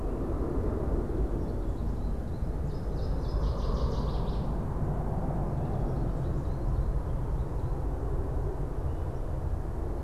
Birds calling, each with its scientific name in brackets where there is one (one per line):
American Goldfinch (Spinus tristis)
Northern Waterthrush (Parkesia noveboracensis)